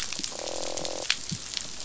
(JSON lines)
{"label": "biophony, croak", "recorder": "SoundTrap 500"}